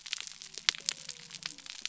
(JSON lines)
{"label": "biophony", "recorder": "SoundTrap 300"}